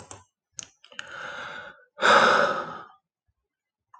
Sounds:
Sigh